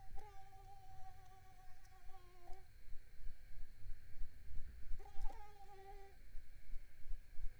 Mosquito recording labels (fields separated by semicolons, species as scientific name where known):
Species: Mansonia uniformis; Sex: female; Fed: unfed; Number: one; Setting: cup